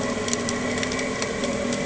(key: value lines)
label: anthrophony, boat engine
recorder: HydroMoth